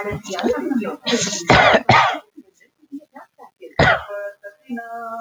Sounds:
Cough